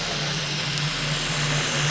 {"label": "anthrophony, boat engine", "recorder": "SoundTrap 500"}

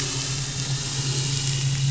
{"label": "anthrophony, boat engine", "recorder": "SoundTrap 500"}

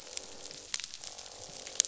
{"label": "biophony, croak", "recorder": "SoundTrap 500"}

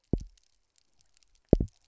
{"label": "biophony, double pulse", "recorder": "SoundTrap 300"}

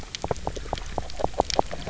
{"label": "biophony, knock croak", "recorder": "SoundTrap 300"}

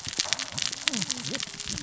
{"label": "biophony, cascading saw", "recorder": "SoundTrap 600 or HydroMoth"}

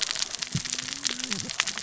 {"label": "biophony, cascading saw", "recorder": "SoundTrap 600 or HydroMoth"}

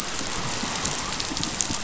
{"label": "biophony", "recorder": "SoundTrap 500"}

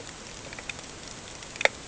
{"label": "ambient", "recorder": "HydroMoth"}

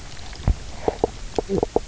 {"label": "biophony, knock croak", "recorder": "SoundTrap 300"}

